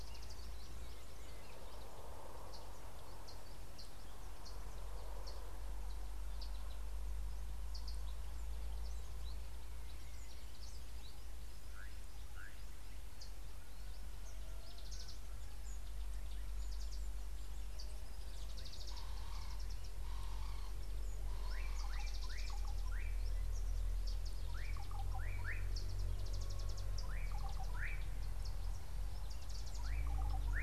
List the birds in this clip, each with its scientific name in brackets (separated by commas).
Slate-colored Boubou (Laniarius funebris), Mariqua Sunbird (Cinnyris mariquensis), Ring-necked Dove (Streptopelia capicola)